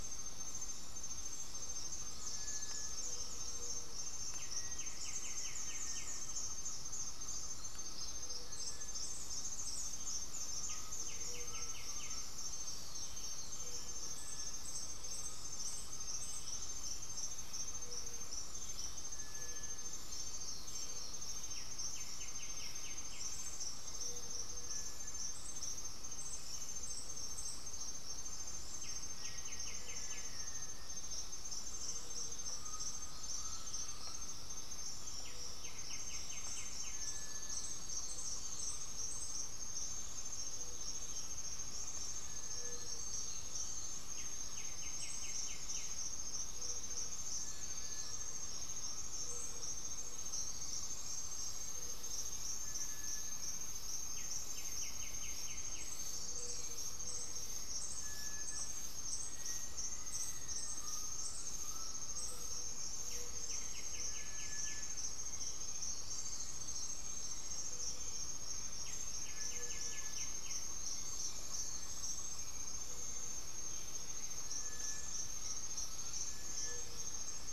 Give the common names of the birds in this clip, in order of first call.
Gray-fronted Dove, Cinereous Tinamou, White-winged Becard, Black-faced Antthrush, Undulated Tinamou, Great Antshrike